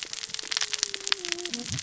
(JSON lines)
{"label": "biophony, cascading saw", "recorder": "SoundTrap 600 or HydroMoth"}